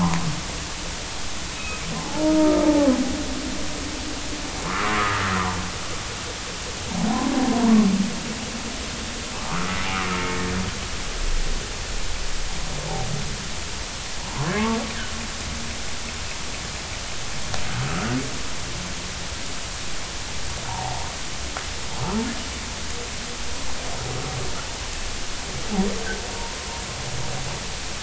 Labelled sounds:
1.5	2.9	humpback whale, 0.80 to 2.6 kHz
4.6	5.2	humpback whale, 0.99 to 1.4 kHz
9.3	9.7	humpback whale, 1.0 to 1.5 kHz
20.7	21.1	humpback whale, 0.80 to 1.0 kHz

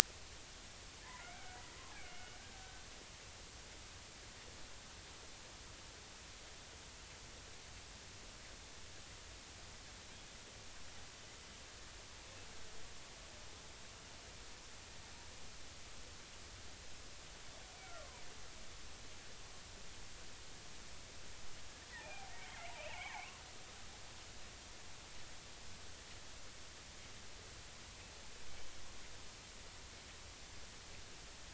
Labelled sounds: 1.2	1.6	killer whale, Bigg's (transient), 1.3 to 2.4 kHz
2.0	2.4	killer whale, Bigg's (transient), 2.1 to 3.0 kHz
18.0	18.2	killer whale, Bigg's (transient), 0.90 to 1.2 kHz
21.9	23.3	killer whale, Bigg's (transient), 0.80 to 3.3 kHz

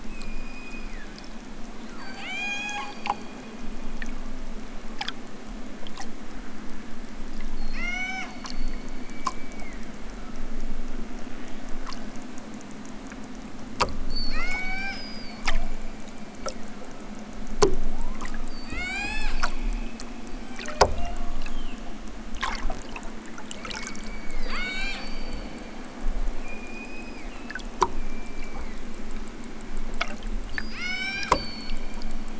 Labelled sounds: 0.0	1.4	killer whale, southern Alaska resident, 1.1 to 8.0 kHz
1.8	3.1	killer whale, southern Alaska resident, 0.41 to 8.0 kHz
7.5	10.6	killer whale, southern Alaska resident, 0.46 to 8.0 kHz
14.0	15.0	killer whale, southern Alaska resident, 0.50 to 8.0 kHz
15.4	17.2	killer whale, southern Alaska resident, 1.0 to 7.8 kHz
17.8	19.5	killer whale, southern Alaska resident, 0.32 to 8.0 kHz
23.5	25.4	killer whale, southern Alaska resident, 0.60 to 8.0 kHz
26.3	29.2	killer whale, southern Alaska resident, 1.0 to 5.3 kHz
30.5	31.3	killer whale, southern Alaska resident, 0.32 to 8.0 kHz

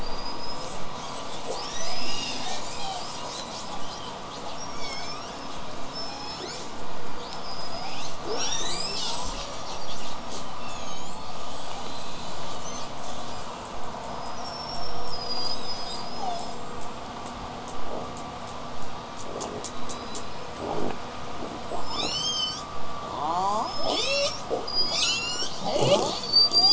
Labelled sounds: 0.0	0.8	killer whale, southern resident, 4.6 to 8.0 kHz
0.4	4.6	killer whale, southern resident, call S10, 0.61 to 8.0 kHz
4.5	5.6	killer whale, southern resident, 1.3 to 8.0 kHz
5.9	6.7	killer whale, southern resident, L pod, call S19, 1.5 to 8.0 kHz
7.2	8.2	killer whale, southern resident, L pod, call S19, 0.55 to 8.0 kHz
8.3	9.3	killer whale, southern resident, 1.2 to 8.0 kHz
8.9	10.3	killer whale, southern resident, call S10, 2.4 to 8.0 kHz
10.3	10.5	killer whale, southern resident, J pod, call S05, 2.5 to 8.0 kHz
10.5	11.3	killer whale, southern resident, 2.1 to 8.0 kHz
12.6	13.5	killer whale, southern resident, 1.8 to 8.0 kHz
14.4	16.6	killer whale, southern resident, 0.57 to 8.0 kHz
19.6	20.8	killer whale, southern resident, whistle, 3.7 to 8.0 kHz
21.4	22.0	killer whale, southern resident, whistle, 6.8 to 8.0 kHz
21.9	22.7	killer whale, southern resident, L pod, call S19, 2.2 to 8.0 kHz
23.0	23.7	killer whale, southern resident, L pod, call S31, 0.27 to 8.0 kHz
23.3	25.6	killer whale, southern resident, L pod, call S19, 0.24 to 8.0 kHz
25.6	26.2	killer whale, southern resident, L pod, call S31, 0.12 to 5.6 kHz
26.2	26.7	killer whale, southern resident, L pod, 0.59 to 8.0 kHz

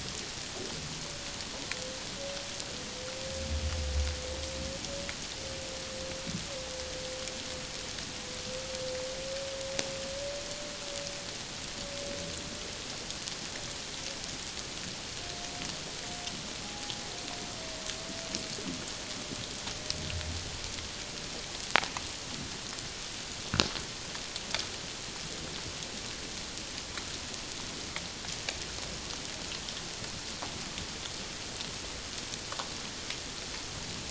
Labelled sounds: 16.6	16.9	humpback whale, 0.78 to 0.91 kHz

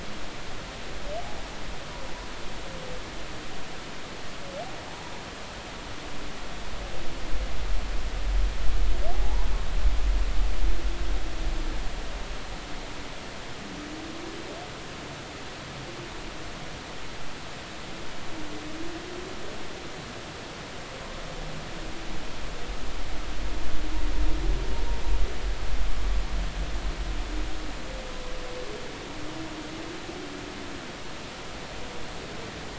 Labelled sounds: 9.1	9.5	humpback whale, 0.80 to 1.1 kHz

